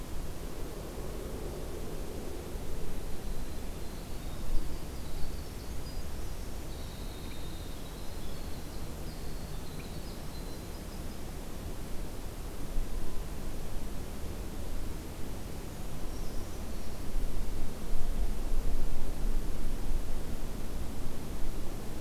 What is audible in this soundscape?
Winter Wren, Brown Creeper